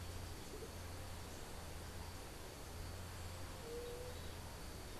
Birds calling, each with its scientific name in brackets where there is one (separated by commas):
Andean Motmot (Momotus aequatorialis), White-tipped Dove (Leptotila verreauxi)